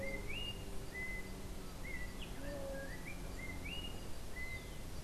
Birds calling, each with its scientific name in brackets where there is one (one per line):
Yellow-backed Oriole (Icterus chrysater)
unidentified bird